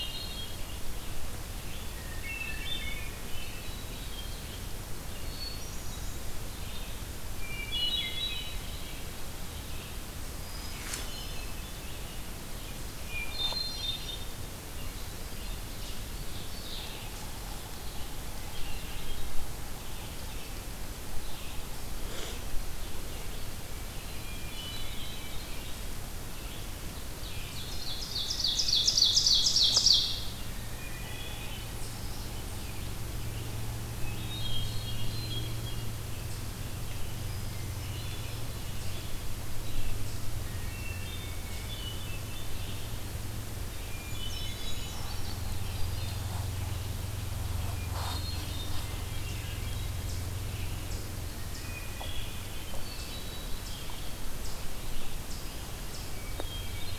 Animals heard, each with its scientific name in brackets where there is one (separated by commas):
Hermit Thrush (Catharus guttatus), Eastern Chipmunk (Tamias striatus), Red-eyed Vireo (Vireo olivaceus), Brown Creeper (Certhia americana), Ovenbird (Seiurus aurocapilla)